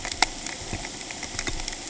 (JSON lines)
{"label": "ambient", "recorder": "HydroMoth"}